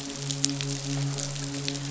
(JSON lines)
{"label": "biophony, midshipman", "recorder": "SoundTrap 500"}